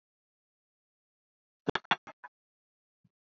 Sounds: Laughter